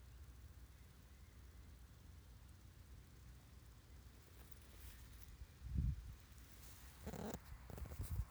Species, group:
Omocestus viridulus
Orthoptera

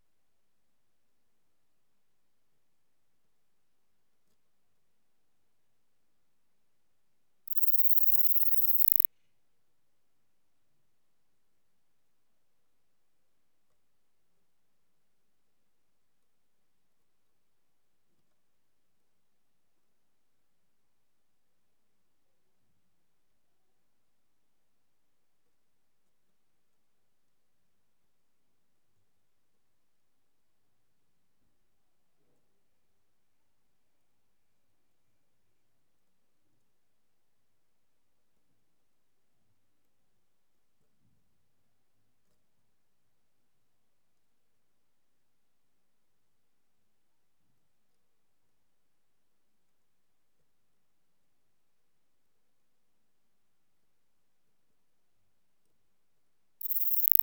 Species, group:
Platycleis iberica
Orthoptera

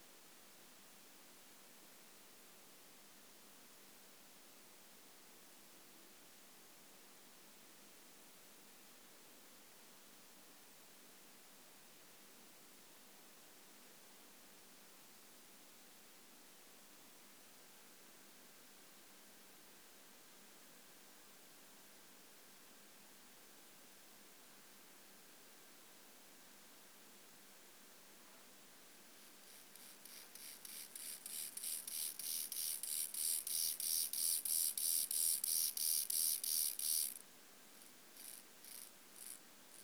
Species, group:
Chorthippus mollis
Orthoptera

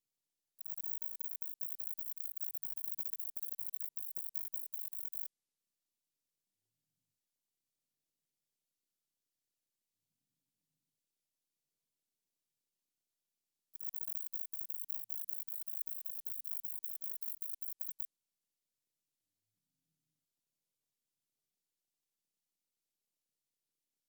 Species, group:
Bicolorana bicolor
Orthoptera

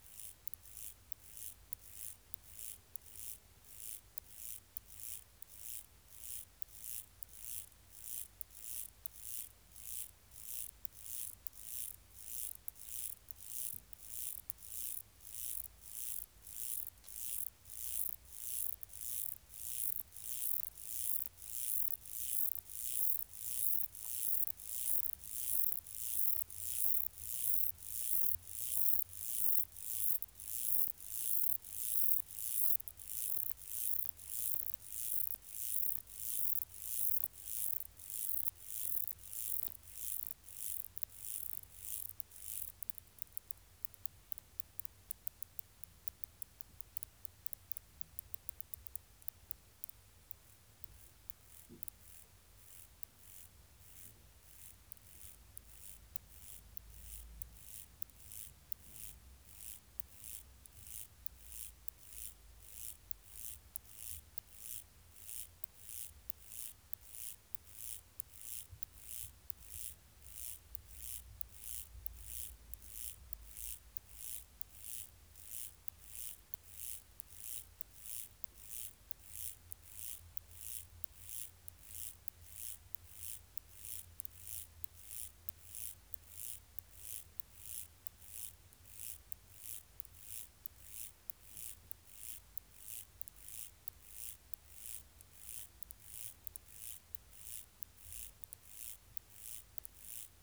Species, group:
Myrmeleotettix maculatus
Orthoptera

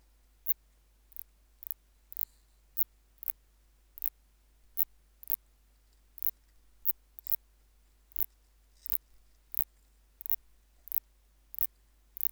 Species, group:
Phaneroptera nana
Orthoptera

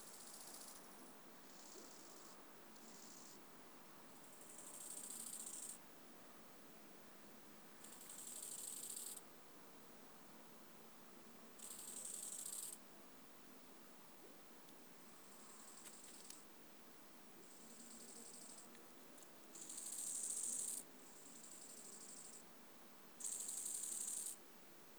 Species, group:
Chorthippus biguttulus
Orthoptera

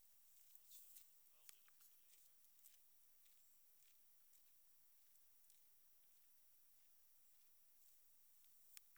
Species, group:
Leptophyes punctatissima
Orthoptera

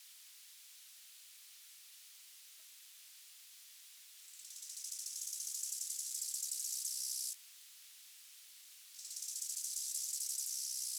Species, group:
Chorthippus biguttulus
Orthoptera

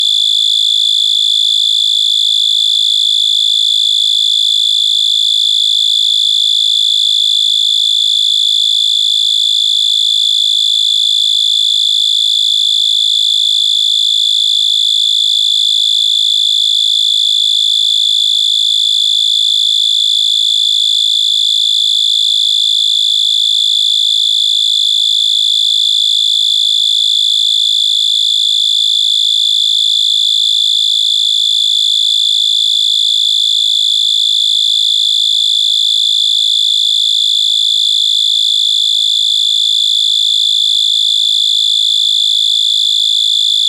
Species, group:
Oecanthus dulcisonans
Orthoptera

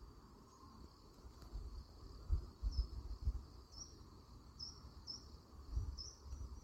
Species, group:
Nemobius sylvestris
Orthoptera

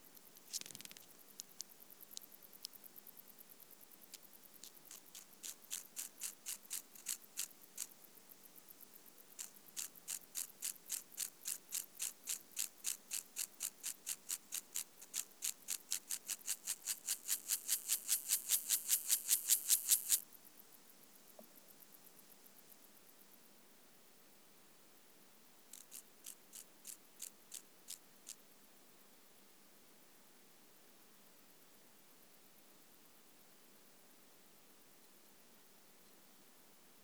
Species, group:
Gomphocerus sibiricus
Orthoptera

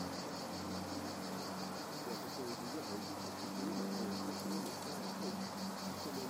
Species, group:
Cicada orni
Cicadidae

